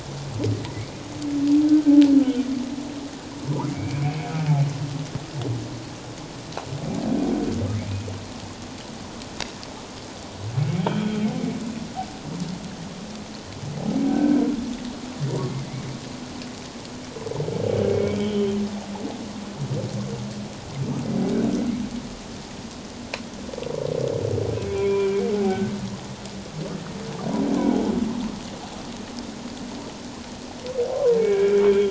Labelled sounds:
3.7	4.3	humpback whale, 2.1 to 2.6 kHz
10.8	11.3	humpback whale, 3.1 to 3.4 kHz
14.1	14.4	humpback whale, 1.4 to 1.7 kHz
15.5	15.9	humpback whale, 1.9 to 2.3 kHz
17.9	18.6	humpback whale, 2.2 to 3.4 kHz
24.7	25.6	humpback whale, 0.78 to 2.4 kHz
30.9	31.8	humpback whale, 0.91 to 3.4 kHz

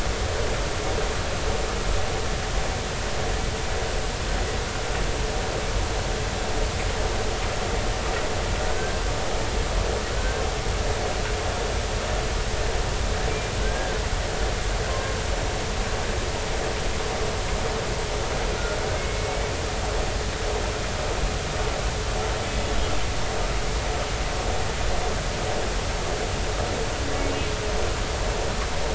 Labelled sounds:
8.7	9.0	humpback whale, 1.5 to 1.6 kHz
10.1	10.4	humpback whale, 1.4 to 1.6 kHz
13.6	14.0	humpback whale, 1.4 to 1.7 kHz
14.9	15.2	humpback whale, 1.0 to 1.1 kHz
18.9	19.5	humpback whale, 2.1 to 2.3 kHz

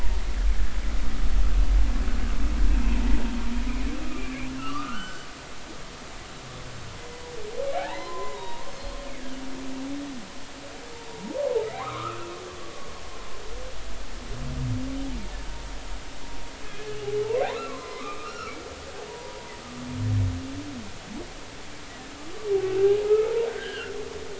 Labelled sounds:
2.8	3.1	humpback whale, 0.86 to 1.1 kHz
4.6	5.3	humpback whale, 1.0 to 7.6 kHz
7.7	8.7	humpback whale, 0.80 to 3.9 kHz
11.1	11.4	humpback whale, 0.86 to 0.99 kHz
11.8	12.9	humpback whale, 0.96 to 2.8 kHz
17.7	19.5	humpback whale, 0.90 to 4.3 kHz
22.7	23.9	humpback whale, 1.3 to 3.2 kHz

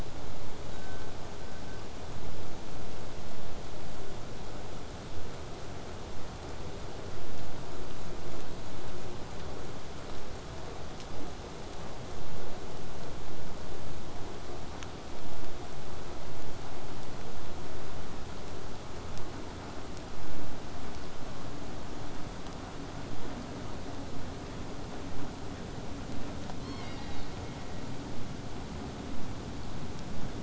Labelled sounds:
26.6	27.4	killer whale, southern resident, 1.5 to 6.6 kHz

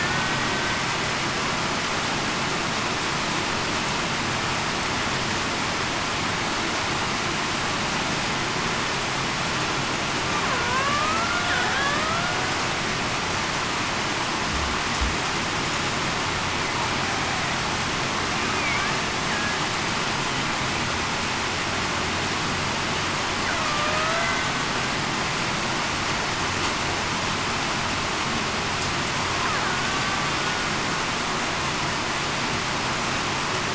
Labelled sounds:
0.0	0.4	killer whale, Bigg's (transient), 1.4 to 1.5 kHz
10.5	10.9	killer whale, Bigg's (transient), 1.4 to 1.7 kHz
11.7	12.1	killer whale, Bigg's (transient), 1.5 to 1.9 kHz
23.8	24.3	killer whale, Bigg's (transient), 0.58 to 0.70 kHz
29.7	30.0	killer whale, Bigg's (transient), 1.4 to 1.5 kHz

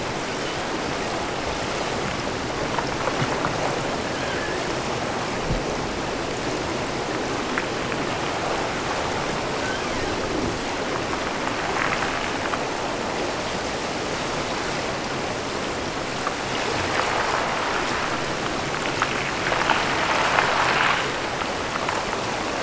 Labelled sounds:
4.1	4.8	killer whale, offshore, 1.3 to 2.0 kHz
9.5	10.1	killer whale, offshore, 1.2 to 3.4 kHz

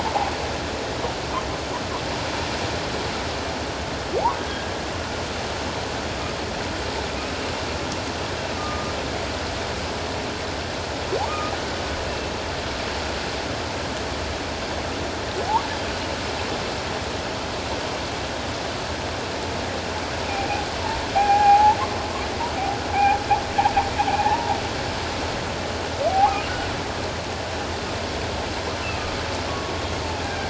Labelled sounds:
4.4	4.8	humpback whale, 1.6 to 1.8 kHz
8.6	8.9	humpback whale, 1.16 to 1.25 kHz
11.2	11.5	humpback whale, 1.1 to 1.3 kHz
21.1	21.8	humpback whale, 0.78 to 1.7 kHz
22.9	23.2	humpback whale, 0.78 to 0.91 kHz
24.2	24.5	humpback whale, 0.78 to 1.1 kHz
26.1	26.4	humpback whale, 0.78 to 0.94 kHz
28.9	29.8	humpback whale, 1.1 to 1.3 kHz
30.2	30.4	humpback whale, 1.5 to 1.7 kHz

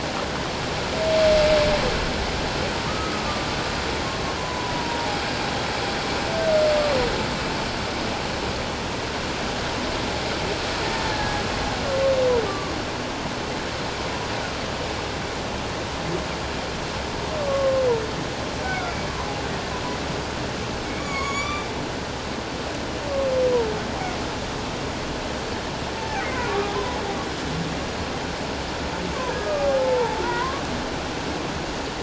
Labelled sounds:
2.9	3.1	humpback whale, 1.2 to 1.3 kHz
4.4	5.2	humpback whale, 0.78 to 1.1 kHz
11.1	11.4	humpback whale, 1.6 to 1.8 kHz
12.4	12.7	humpback whale, 1.1 to 1.2 kHz
17.4	18.9	humpback whale, 1.0 to 1.6 kHz
20.8	21.7	humpback whale, 1.0 to 7.0 kHz
26.0	26.8	humpback whale, 0.78 to 2.2 kHz
29.6	30.6	humpback whale, 0.78 to 2.1 kHz

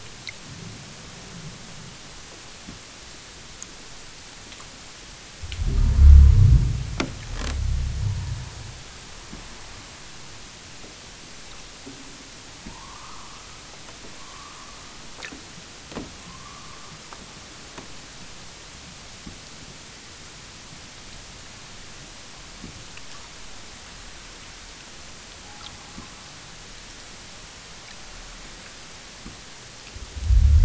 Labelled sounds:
12.6	13.8	killer whale, southern Alaska resident, 0.50 to 1.8 kHz
14.1	15.1	killer whale, southern Alaska resident, 0.59 to 1.7 kHz
16.1	17.2	killer whale, southern Alaska resident, 0.64 to 1.6 kHz

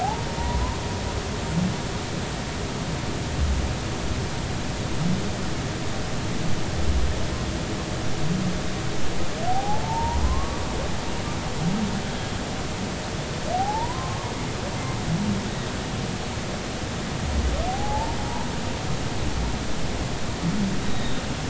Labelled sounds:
0.0	0.8	humpback whale, 0.80 to 1.1 kHz
9.5	10.6	humpback whale, 0.80 to 1.2 kHz
13.5	14.3	humpback whale, 0.80 to 1.2 kHz
17.7	18.2	humpback whale, 0.80 to 0.96 kHz
20.8	21.2	humpback whale, 3.5 to 3.9 kHz

